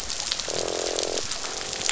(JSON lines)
{"label": "biophony, croak", "recorder": "SoundTrap 500"}